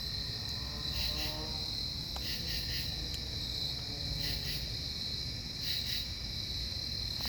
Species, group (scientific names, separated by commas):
Pterophylla camellifolia, Orthoptera